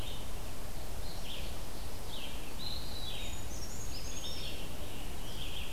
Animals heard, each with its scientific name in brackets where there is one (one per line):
Eastern Wood-Pewee (Contopus virens)
Red-eyed Vireo (Vireo olivaceus)
Brown Creeper (Certhia americana)